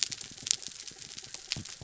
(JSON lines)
{"label": "biophony", "recorder": "SoundTrap 300"}
{"label": "anthrophony, mechanical", "recorder": "SoundTrap 300"}